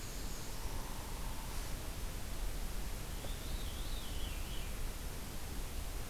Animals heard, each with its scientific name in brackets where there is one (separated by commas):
Black-throated Blue Warbler (Setophaga caerulescens), Downy Woodpecker (Dryobates pubescens), Veery (Catharus fuscescens), Black-and-white Warbler (Mniotilta varia)